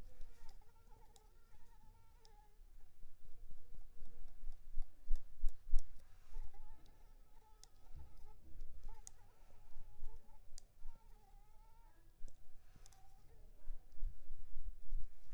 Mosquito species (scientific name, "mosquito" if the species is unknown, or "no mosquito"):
Anopheles arabiensis